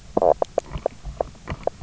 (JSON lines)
{"label": "biophony, knock croak", "recorder": "SoundTrap 300"}